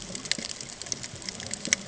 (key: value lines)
label: ambient
recorder: HydroMoth